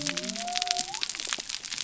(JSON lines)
{"label": "biophony", "recorder": "SoundTrap 300"}